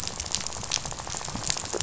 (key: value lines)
label: biophony, rattle
recorder: SoundTrap 500